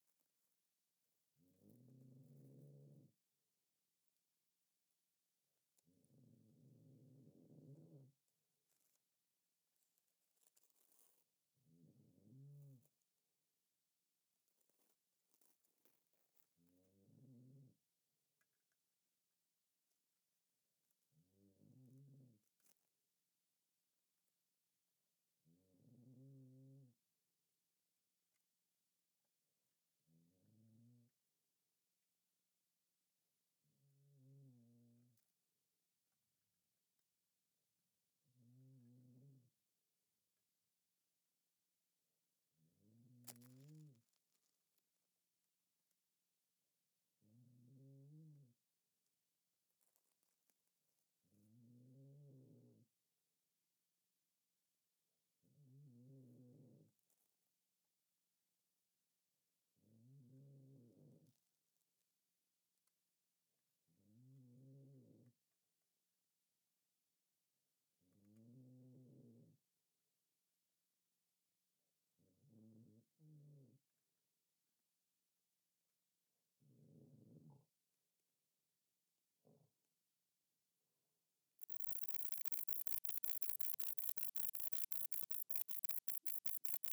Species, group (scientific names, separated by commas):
Bicolorana bicolor, Orthoptera